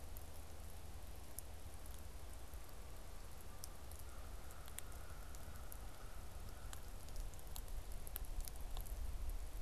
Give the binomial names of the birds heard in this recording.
Corvus brachyrhynchos